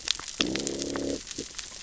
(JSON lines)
{"label": "biophony, growl", "recorder": "SoundTrap 600 or HydroMoth"}